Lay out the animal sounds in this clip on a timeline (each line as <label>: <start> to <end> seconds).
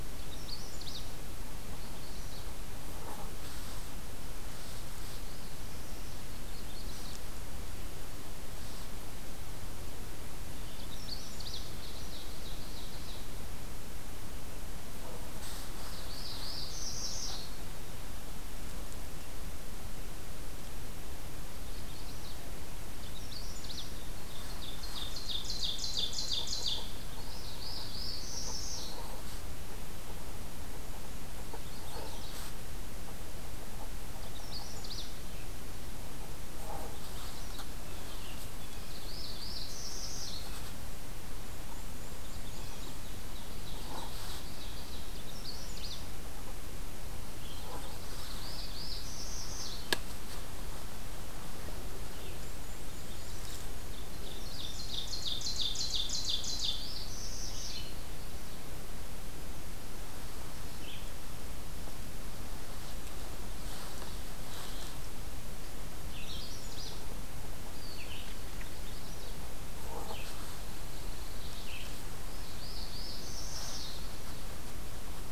Magnolia Warbler (Setophaga magnolia): 0.0 to 1.1 seconds
Magnolia Warbler (Setophaga magnolia): 1.7 to 2.5 seconds
Magnolia Warbler (Setophaga magnolia): 6.1 to 7.5 seconds
Magnolia Warbler (Setophaga magnolia): 10.5 to 11.8 seconds
Ovenbird (Seiurus aurocapilla): 11.6 to 13.4 seconds
Northern Parula (Setophaga americana): 15.6 to 17.7 seconds
Magnolia Warbler (Setophaga magnolia): 21.5 to 22.5 seconds
Magnolia Warbler (Setophaga magnolia): 22.8 to 24.0 seconds
Ovenbird (Seiurus aurocapilla): 24.1 to 27.0 seconds
Northern Parula (Setophaga americana): 27.1 to 29.2 seconds
Magnolia Warbler (Setophaga magnolia): 31.5 to 32.5 seconds
Magnolia Warbler (Setophaga magnolia): 34.1 to 35.2 seconds
Magnolia Warbler (Setophaga magnolia): 36.8 to 37.7 seconds
Northern Parula (Setophaga americana): 38.8 to 40.7 seconds
Black-and-white Warbler (Mniotilta varia): 41.5 to 43.3 seconds
Ovenbird (Seiurus aurocapilla): 43.1 to 45.5 seconds
Magnolia Warbler (Setophaga magnolia): 45.2 to 46.4 seconds
Northern Parula (Setophaga americana): 47.9 to 50.1 seconds
Black-and-white Warbler (Mniotilta varia): 52.1 to 53.8 seconds
Ovenbird (Seiurus aurocapilla): 53.9 to 57.0 seconds
Northern Parula (Setophaga americana): 56.5 to 58.1 seconds
Red-eyed Vireo (Vireo olivaceus): 64.3 to 75.3 seconds
Magnolia Warbler (Setophaga magnolia): 65.9 to 67.0 seconds
Magnolia Warbler (Setophaga magnolia): 68.7 to 69.4 seconds
Pine Warbler (Setophaga pinus): 70.0 to 72.0 seconds
Northern Parula (Setophaga americana): 72.3 to 74.2 seconds